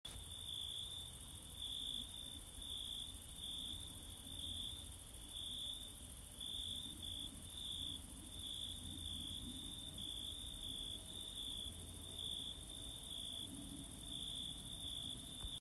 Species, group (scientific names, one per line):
Oecanthus pellucens
Orthoptera